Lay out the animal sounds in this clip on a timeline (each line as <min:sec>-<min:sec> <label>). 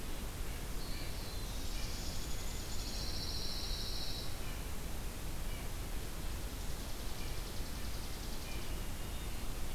0:00.0-0:08.8 Red-breasted Nuthatch (Sitta canadensis)
0:00.4-0:02.5 Black-throated Blue Warbler (Setophaga caerulescens)
0:01.8-0:03.0 Chipping Sparrow (Spizella passerina)
0:02.7-0:04.4 Pine Warbler (Setophaga pinus)
0:06.4-0:08.9 Chipping Sparrow (Spizella passerina)
0:08.6-0:09.7 Hermit Thrush (Catharus guttatus)